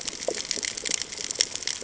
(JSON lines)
{"label": "ambient", "recorder": "HydroMoth"}